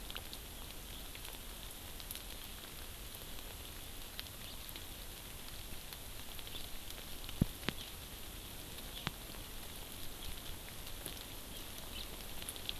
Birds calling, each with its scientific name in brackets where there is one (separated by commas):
House Finch (Haemorhous mexicanus)